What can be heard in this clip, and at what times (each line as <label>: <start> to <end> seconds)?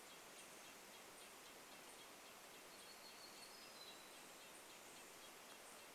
Red-breasted Nuthatch song: 0 to 6 seconds
unidentified bird chip note: 0 to 6 seconds
warbler song: 2 to 4 seconds